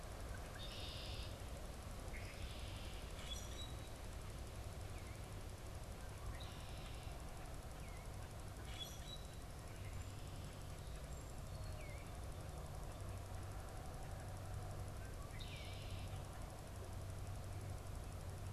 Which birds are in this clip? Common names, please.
Red-winged Blackbird, Common Grackle, Eastern Bluebird